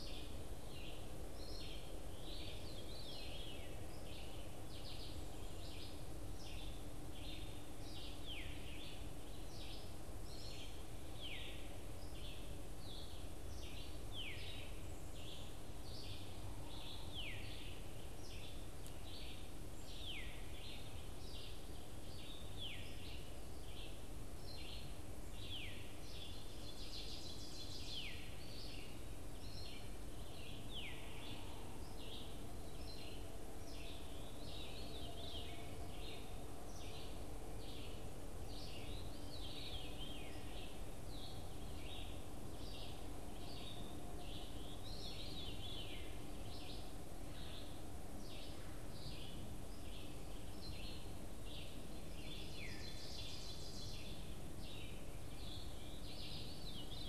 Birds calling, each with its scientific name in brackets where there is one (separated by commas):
Veery (Catharus fuscescens), Red-eyed Vireo (Vireo olivaceus), Ovenbird (Seiurus aurocapilla)